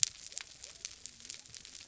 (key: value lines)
label: biophony
recorder: SoundTrap 300